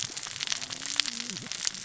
{"label": "biophony, cascading saw", "recorder": "SoundTrap 600 or HydroMoth"}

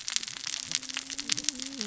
{"label": "biophony, cascading saw", "recorder": "SoundTrap 600 or HydroMoth"}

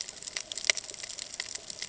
{"label": "ambient", "recorder": "HydroMoth"}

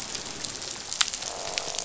{"label": "biophony, croak", "recorder": "SoundTrap 500"}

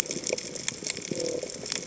{"label": "biophony", "recorder": "HydroMoth"}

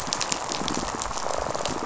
{"label": "biophony, rattle response", "recorder": "SoundTrap 500"}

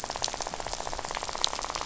{"label": "biophony, rattle", "recorder": "SoundTrap 500"}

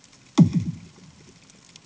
{"label": "anthrophony, bomb", "recorder": "HydroMoth"}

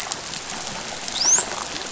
{"label": "biophony", "recorder": "SoundTrap 500"}
{"label": "biophony, dolphin", "recorder": "SoundTrap 500"}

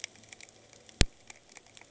{"label": "anthrophony, boat engine", "recorder": "HydroMoth"}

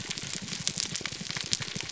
{"label": "biophony, grouper groan", "recorder": "SoundTrap 300"}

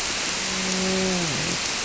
{"label": "biophony, grouper", "recorder": "SoundTrap 300"}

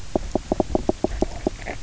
{"label": "biophony, knock croak", "recorder": "SoundTrap 300"}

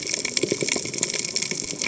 {"label": "biophony, cascading saw", "recorder": "HydroMoth"}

